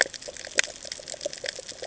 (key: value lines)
label: ambient
recorder: HydroMoth